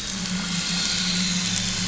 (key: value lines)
label: anthrophony, boat engine
recorder: SoundTrap 500